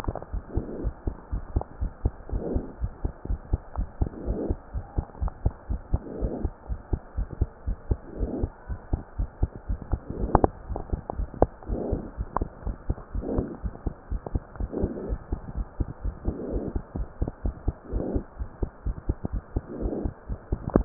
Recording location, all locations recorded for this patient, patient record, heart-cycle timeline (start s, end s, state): pulmonary valve (PV)
aortic valve (AV)+pulmonary valve (PV)+tricuspid valve (TV)+mitral valve (MV)
#Age: Child
#Sex: Female
#Height: 104.0 cm
#Weight: 20.4 kg
#Pregnancy status: False
#Murmur: Absent
#Murmur locations: nan
#Most audible location: nan
#Systolic murmur timing: nan
#Systolic murmur shape: nan
#Systolic murmur grading: nan
#Systolic murmur pitch: nan
#Systolic murmur quality: nan
#Diastolic murmur timing: nan
#Diastolic murmur shape: nan
#Diastolic murmur grading: nan
#Diastolic murmur pitch: nan
#Diastolic murmur quality: nan
#Outcome: Abnormal
#Campaign: 2015 screening campaign
0.00	0.13	unannotated
0.13	0.30	diastole
0.30	0.44	S1
0.44	0.54	systole
0.54	0.64	S2
0.64	0.80	diastole
0.80	0.94	S1
0.94	1.06	systole
1.06	1.14	S2
1.14	1.32	diastole
1.32	1.44	S1
1.44	1.52	systole
1.52	1.64	S2
1.64	1.80	diastole
1.80	1.92	S1
1.92	2.04	systole
2.04	2.16	S2
2.16	2.32	diastole
2.32	2.44	S1
2.44	2.52	systole
2.52	2.64	S2
2.64	2.80	diastole
2.80	2.92	S1
2.92	3.02	systole
3.02	3.12	S2
3.12	3.28	diastole
3.28	3.37	S1
3.37	3.46	systole
3.46	3.58	S2
3.58	3.75	diastole
3.75	3.88	S1
3.88	3.98	systole
3.98	4.08	S2
4.08	4.24	diastole
4.24	4.35	S1
4.35	4.44	systole
4.44	4.58	S2
4.58	4.72	diastole
4.72	4.84	S1
4.84	4.96	systole
4.96	5.06	S2
5.06	5.20	diastole
5.20	5.32	S1
5.32	5.42	systole
5.42	5.54	S2
5.54	5.70	diastole
5.70	5.82	S1
5.82	5.92	systole
5.92	6.02	S2
6.02	6.18	diastole
6.18	6.32	S1
6.32	6.42	systole
6.42	6.52	S2
6.52	6.70	diastole
6.70	6.80	S1
6.80	6.90	systole
6.90	7.00	S2
7.00	7.16	diastole
7.16	7.28	S1
7.28	7.40	systole
7.40	7.50	S2
7.50	7.66	diastole
7.66	7.78	S1
7.78	7.88	systole
7.88	7.98	S2
7.98	8.18	diastole
8.18	8.31	S1
8.31	8.40	systole
8.40	8.50	S2
8.50	8.68	diastole
8.68	8.80	S1
8.80	8.92	systole
8.92	9.02	S2
9.02	9.18	diastole
9.18	9.30	S1
9.30	9.40	systole
9.40	9.52	S2
9.52	9.68	diastole
9.68	9.80	S1
9.80	9.90	systole
9.90	10.02	S2
10.02	10.18	diastole
10.18	10.28	S1
10.28	10.36	systole
10.36	10.52	S2
10.52	10.68	diastole
10.68	10.80	S1
10.80	10.92	systole
10.92	11.02	S2
11.02	11.18	diastole
11.18	11.30	S1
11.30	11.40	systole
11.40	11.52	S2
11.52	11.70	diastole
11.70	11.81	S1
11.81	11.90	systole
11.90	12.04	S2
12.04	12.17	diastole
12.17	12.28	S1
12.28	12.36	systole
12.36	12.50	S2
12.50	12.66	diastole
12.66	12.76	S1
12.76	12.88	systole
12.88	12.98	S2
12.98	13.14	diastole
13.14	13.26	S1
13.26	13.34	systole
13.34	13.48	S2
13.48	13.64	diastole
13.64	13.74	S1
13.74	13.82	systole
13.82	13.96	S2
13.96	14.12	diastole
14.12	14.22	S1
14.22	14.34	systole
14.34	14.44	S2
14.44	14.60	diastole
14.60	14.72	S1
14.72	14.80	systole
14.80	14.92	S2
14.92	15.06	diastole
15.06	15.20	S1
15.20	15.32	systole
15.32	15.42	S2
15.42	15.56	diastole
15.56	15.68	S1
15.68	15.76	systole
15.76	15.90	S2
15.90	16.04	diastole
16.04	16.16	S1
16.16	16.26	systole
16.26	16.38	S2
16.38	16.53	diastole
16.53	16.63	S1
16.63	16.72	systole
16.72	16.82	S2
16.82	16.96	diastole
16.96	17.08	S1
17.08	17.20	systole
17.20	17.32	S2
17.32	17.45	diastole
17.45	17.56	S1
17.56	17.64	systole
17.64	17.78	S2
17.78	17.92	diastole
17.92	20.85	unannotated